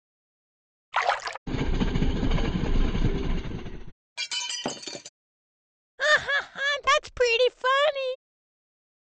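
First, at 0.92 seconds, splashing is heard. Then at 1.46 seconds, you can hear a train. After that, at 4.16 seconds, glass shatters. Finally, at 5.98 seconds, there is laughter.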